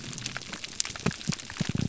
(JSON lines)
{"label": "biophony", "recorder": "SoundTrap 300"}